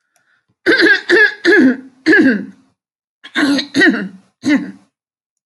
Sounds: Throat clearing